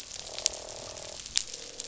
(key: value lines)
label: biophony, croak
recorder: SoundTrap 500